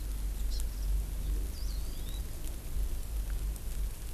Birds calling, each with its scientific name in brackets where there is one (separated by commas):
Warbling White-eye (Zosterops japonicus), Hawaii Amakihi (Chlorodrepanis virens)